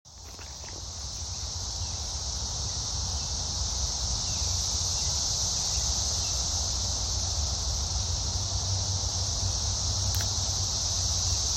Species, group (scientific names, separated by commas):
Magicicada cassini, Cicadidae